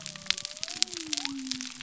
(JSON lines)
{"label": "biophony", "recorder": "SoundTrap 300"}